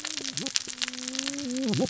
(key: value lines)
label: biophony, cascading saw
recorder: SoundTrap 600 or HydroMoth